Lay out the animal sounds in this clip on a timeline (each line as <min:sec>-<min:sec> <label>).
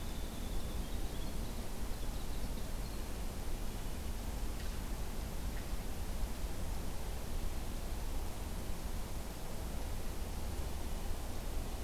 0:00.0-0:03.1 Winter Wren (Troglodytes hiemalis)
0:02.8-0:04.3 Red-breasted Nuthatch (Sitta canadensis)